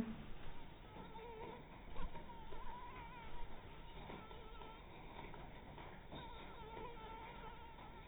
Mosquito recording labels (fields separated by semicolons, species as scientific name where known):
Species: mosquito; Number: one; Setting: cup